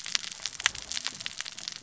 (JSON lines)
{"label": "biophony, cascading saw", "recorder": "SoundTrap 600 or HydroMoth"}